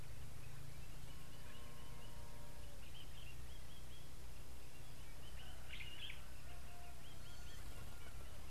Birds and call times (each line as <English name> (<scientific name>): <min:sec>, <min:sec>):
Common Bulbul (Pycnonotus barbatus): 0:05.9
Gray-backed Camaroptera (Camaroptera brevicaudata): 0:07.4